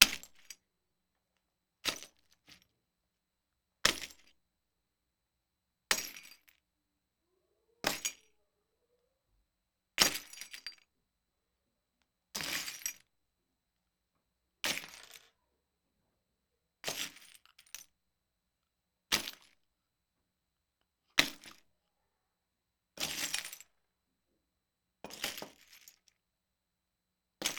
Is someone whistling?
no